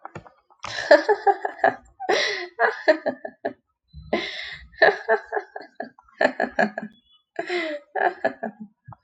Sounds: Laughter